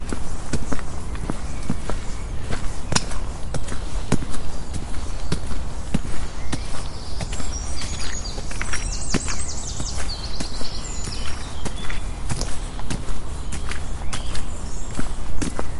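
0.0s A bird is singing in the background. 15.8s
0.0s Footsteps on the ground in a natural environment. 15.8s

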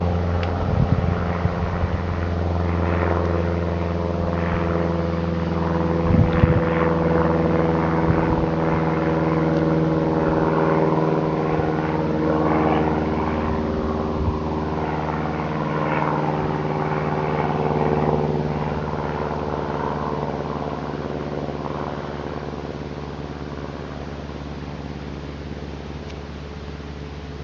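0.2s A helicopter is flying. 27.4s

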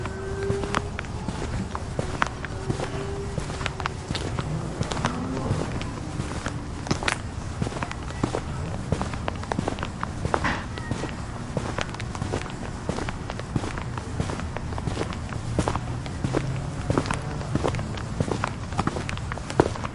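0.0s Engine noises muffled in the distance. 7.2s
0.0s Footsteps on a soft surface. 19.9s

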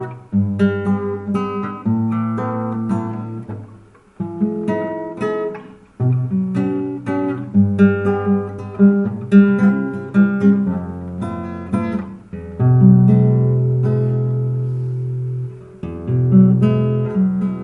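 0.0s A classical nylon-string guitar is being played. 17.6s

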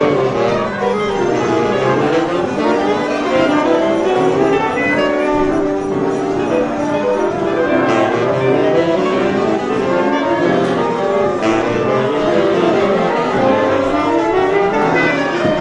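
0.0s A trumpet plays a gradually rising note. 5.5s
0.0s Instruments playing sounds repeating in no particular rhythm or order. 15.6s
0.0s People mumbling in the background. 15.6s
7.9s A trumpet plays a gradually rising note. 15.6s

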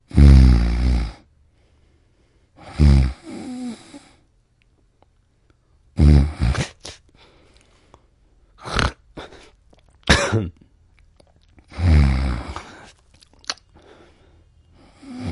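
0.1s Snoring. 1.1s
2.6s Snoring. 4.0s
6.0s Snoring. 7.2s
8.6s Snoring. 9.6s
10.1s A person coughing. 10.5s
11.7s Snoring. 13.5s
15.0s Breathing sounds. 15.3s

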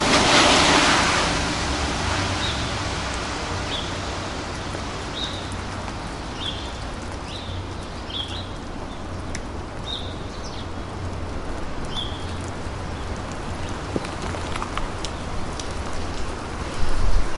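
0.0s Metallic components produce a rough, low-pitched scratchy rubbing sound that fades into the distance. 2.7s
0.0s Vehicle engine fading into the distance. 4.6s
2.3s A bird chirps once. 2.7s
3.6s A bird chirps once. 4.0s
5.1s A bird chirps once. 5.5s
6.3s A bird chirps once. 8.6s
9.8s A bird chirps once. 10.3s
11.8s A bird chirps once. 12.3s

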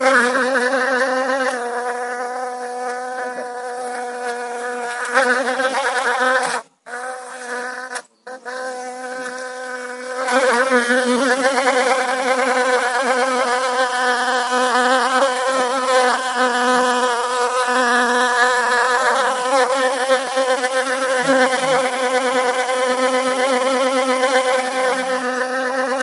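0.0s A bee buzzes continuously and loudly. 1.7s
0.0s People are talking softly. 26.0s
1.7s A bee is buzzing softly and continuously. 5.2s
5.1s A bee buzzes continuously and loudly. 6.8s
6.8s A bee is buzzing softly and continuously. 10.1s
10.1s A bee buzzes continuously and loudly. 26.0s

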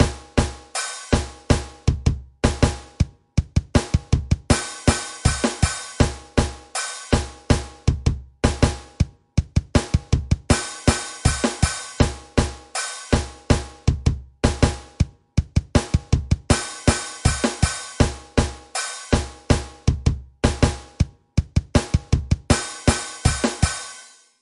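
0.0s A rhythmic drum sound. 24.4s

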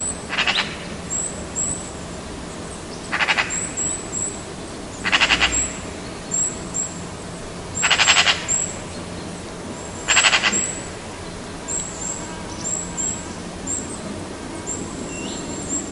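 0.2s A frog croaks. 0.7s
1.0s A bird chirps. 1.8s
3.1s A frog croaks. 3.6s
3.6s A bird chirps. 4.4s
5.0s A frog croaks. 5.8s
6.2s A bird chirps. 7.0s
7.8s A frog croaks. 8.4s
8.4s A bird chirps. 8.8s
10.1s A frog croaks. 10.7s
11.6s A bee is buzzing. 15.9s
11.6s A bird chirping. 15.9s

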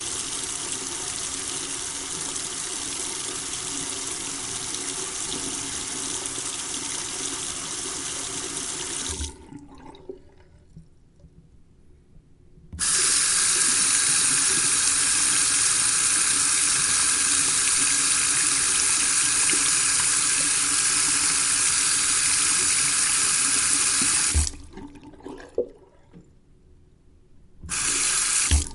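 0.0s Running water in a washroom with an echo. 9.4s
9.3s Water running through a sink, fading away. 10.2s
12.9s Running water echoes loudly in a washroom. 24.5s
24.5s Water running through a sink, fading away. 25.7s
27.7s Running water in a washroom with an echo. 28.7s

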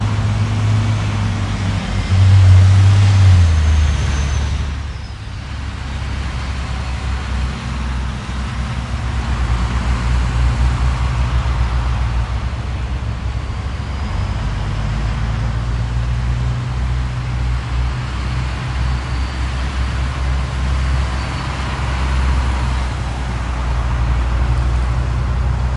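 0.0s Heavy trucks, tanks, and other vehicles are driving, creating loud rumbling engine noises that gradually increase. 5.6s
7.1s Heavy trucks, tanks, and other military vehicles drive by, producing a constant rumbling of loud engine noise. 25.8s

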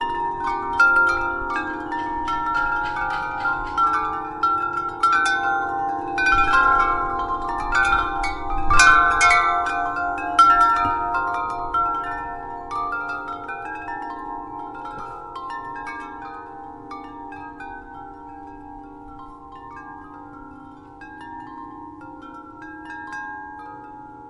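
0.0s Chimes hit each other with alternating forces nearby. 12.1s
12.1s Chime noises steadily fading away. 24.3s

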